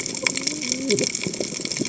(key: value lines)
label: biophony, cascading saw
recorder: HydroMoth